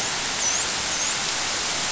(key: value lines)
label: biophony, dolphin
recorder: SoundTrap 500